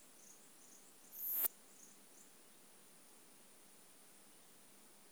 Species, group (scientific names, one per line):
Poecilimon pseudornatus
Orthoptera